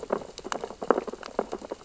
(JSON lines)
{"label": "biophony, sea urchins (Echinidae)", "recorder": "SoundTrap 600 or HydroMoth"}